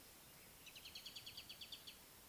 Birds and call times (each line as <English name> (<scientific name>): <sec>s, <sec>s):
Mariqua Sunbird (Cinnyris mariquensis): 1.3s